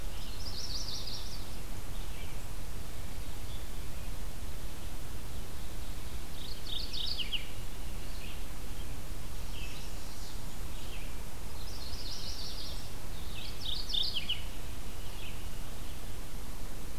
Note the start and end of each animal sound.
[0.00, 1.41] Chestnut-sided Warbler (Setophaga pensylvanica)
[6.20, 7.61] Mourning Warbler (Geothlypis philadelphia)
[9.41, 10.39] Chestnut-sided Warbler (Setophaga pensylvanica)
[11.48, 13.00] Chestnut-sided Warbler (Setophaga pensylvanica)
[13.41, 14.54] Mourning Warbler (Geothlypis philadelphia)

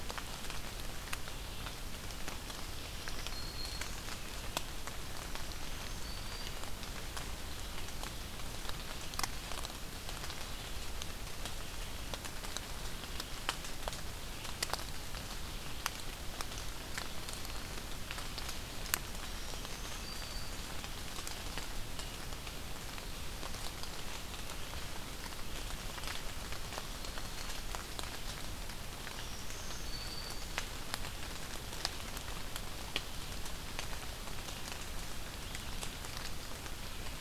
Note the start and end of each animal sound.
[2.38, 4.14] Black-throated Green Warbler (Setophaga virens)
[5.12, 6.79] Black-throated Green Warbler (Setophaga virens)
[16.51, 18.02] Black-throated Green Warbler (Setophaga virens)
[19.15, 20.78] Black-throated Green Warbler (Setophaga virens)
[28.73, 30.53] Black-throated Green Warbler (Setophaga virens)

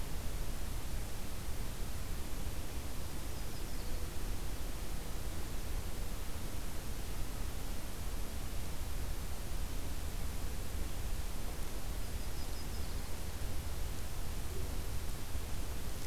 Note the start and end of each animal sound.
[2.85, 4.04] Red-breasted Nuthatch (Sitta canadensis)
[11.85, 13.18] Yellow-rumped Warbler (Setophaga coronata)

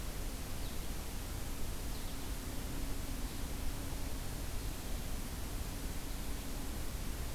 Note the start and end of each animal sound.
[0.47, 1.24] American Goldfinch (Spinus tristis)
[1.78, 2.55] American Goldfinch (Spinus tristis)

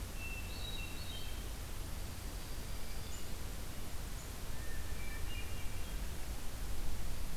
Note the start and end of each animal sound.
[0.00, 1.70] Hermit Thrush (Catharus guttatus)
[1.64, 3.37] Dark-eyed Junco (Junco hyemalis)
[4.51, 6.04] Hermit Thrush (Catharus guttatus)

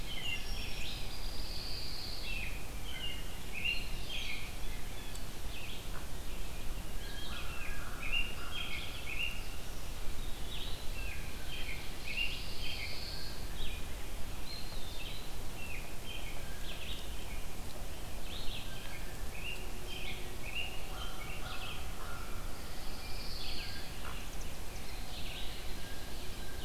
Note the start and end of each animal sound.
[0.00, 1.21] Red-eyed Vireo (Vireo olivaceus)
[0.00, 1.93] Song Sparrow (Melospiza melodia)
[1.09, 2.50] Pine Warbler (Setophaga pinus)
[2.11, 4.51] American Robin (Turdus migratorius)
[3.59, 26.64] Red-eyed Vireo (Vireo olivaceus)
[5.80, 6.09] Hooded Merganser (Lophodytes cucullatus)
[7.16, 9.76] American Robin (Turdus migratorius)
[7.21, 8.86] American Crow (Corvus brachyrhynchos)
[10.71, 12.99] American Robin (Turdus migratorius)
[11.61, 13.57] Pine Warbler (Setophaga pinus)
[14.29, 15.61] Eastern Wood-Pewee (Contopus virens)
[15.45, 17.25] American Robin (Turdus migratorius)
[16.31, 17.04] Blue Jay (Cyanocitta cristata)
[18.49, 19.32] Blue Jay (Cyanocitta cristata)
[18.75, 22.01] American Robin (Turdus migratorius)
[20.76, 22.42] American Crow (Corvus brachyrhynchos)
[22.38, 23.93] Pine Warbler (Setophaga pinus)
[23.84, 24.30] Hooded Merganser (Lophodytes cucullatus)
[24.08, 25.03] Chimney Swift (Chaetura pelagica)
[25.04, 26.50] Ovenbird (Seiurus aurocapilla)
[25.17, 26.64] Blue Jay (Cyanocitta cristata)

